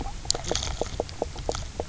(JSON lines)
{"label": "biophony, knock croak", "recorder": "SoundTrap 300"}